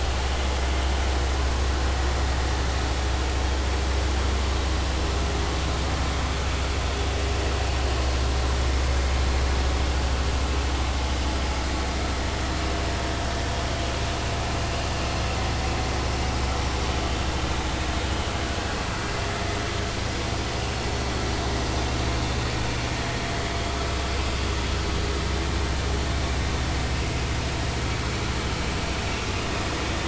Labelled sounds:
26.9	27.2	vessel noise, 2.4 to 2.8 kHz

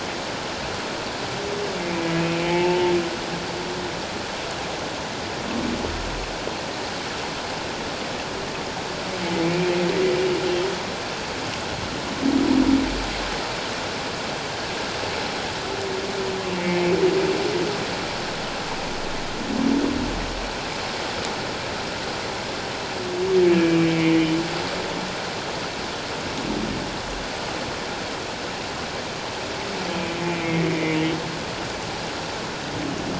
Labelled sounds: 1.9	2.1	humpback whale, 2.3 to 2.5 kHz
2.4	2.9	humpback whale, 0.81 to 2.7 kHz
9.4	9.7	humpback whale, 2.2 to 2.5 kHz
16.6	16.8	humpback whale, 2.2 to 2.3 kHz
23.5	24.3	humpback whale, 2.2 to 3.0 kHz
30.1	31.1	humpback whale, 2.0 to 3.0 kHz

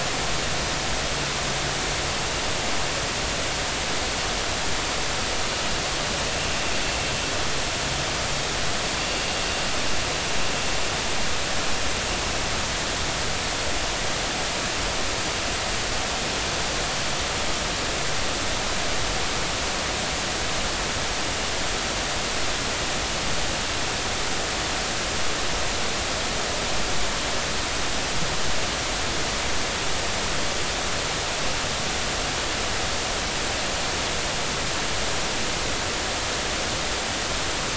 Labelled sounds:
9.0	9.2	vessel noise, 2.7 to 2.8 kHz

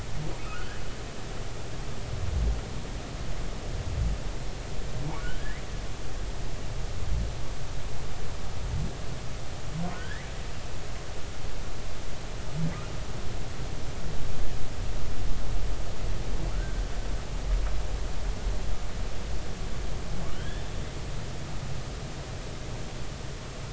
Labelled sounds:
0.4	0.8	humpback whale, 1.2 to 1.8 kHz
5.4	5.6	humpback whale, 1.6 to 2.1 kHz
9.9	10.3	humpback whale, 1.4 to 2.1 kHz
20.3	20.7	humpback whale, 1.4 to 3.6 kHz

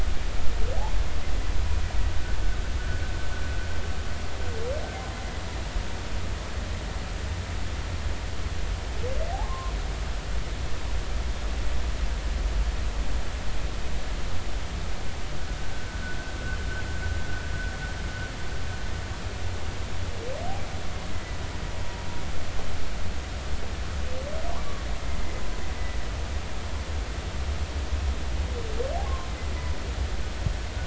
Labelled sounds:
9.3	9.7	humpback whale, 0.80 to 1.1 kHz
21.1	21.4	humpback whale, 2.0 to 2.1 kHz
29.0	29.3	humpback whale, 0.99 to 1.1 kHz

